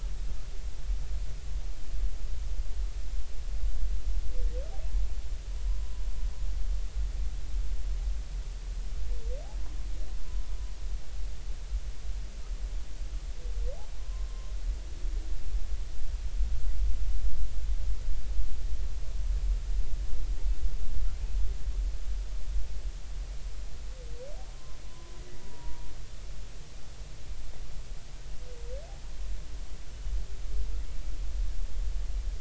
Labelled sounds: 14.0	14.5	humpback whale, 0.99 to 1.1 kHz
24.9	25.9	humpback whale, 0.90 to 1.1 kHz

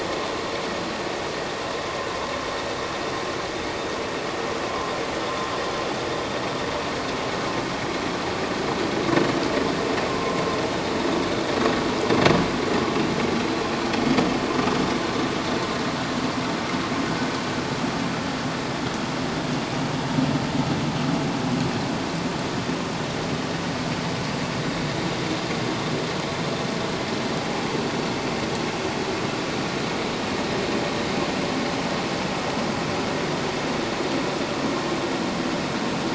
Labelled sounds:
10.1	10.4	vessel noise, 0.97 to 1.1 kHz

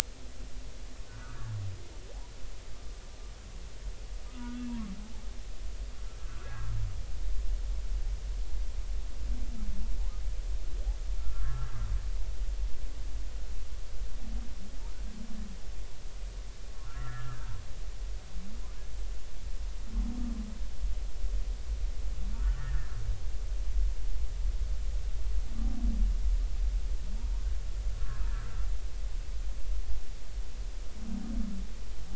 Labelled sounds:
1.1	1.5	humpback whale, 1.1 to 1.6 kHz
4.3	4.7	humpback whale, 1.2 to 1.5 kHz
6.2	6.5	humpback whale, 1.2 to 1.5 kHz
11.2	11.7	humpback whale, 1.0 to 1.8 kHz
16.8	17.5	humpback whale, 1.2 to 2.0 kHz
22.3	22.9	humpback whale, 1.2 to 2.0 kHz
28.3	28.6	humpback whale, 1.2 to 1.4 kHz
29.0	29.3	humpback whale, 1.2 to 1.4 kHz

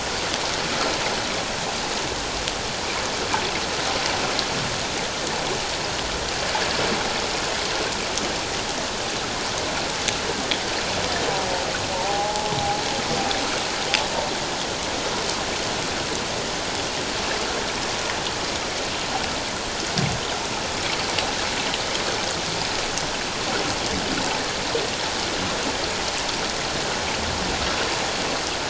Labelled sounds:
12.0	12.5	humpback whale, 0.78 to 0.91 kHz

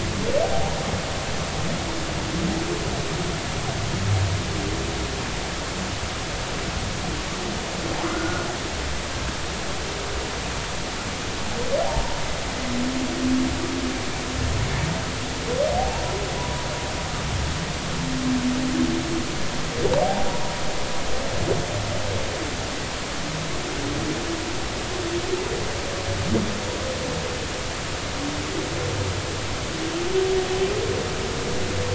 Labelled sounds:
0.4	0.8	humpback whale, 0.80 to 0.99 kHz
8.1	8.5	humpback whale, 1.3 to 1.5 kHz
15.8	16.0	humpback whale, 0.80 to 0.99 kHz
16.4	16.7	humpback whale, 0.93 to 1.1 kHz
20.0	20.3	humpback whale, 0.80 to 0.99 kHz

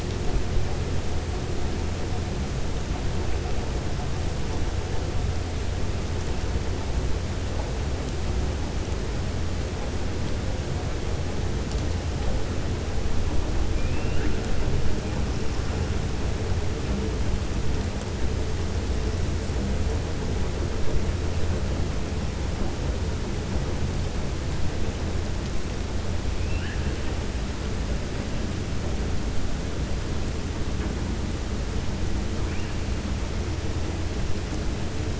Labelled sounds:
13.7	14.4	killer whale, 1.4 to 3.7 kHz
26.4	27.0	killer whale, 1.4 to 3.1 kHz

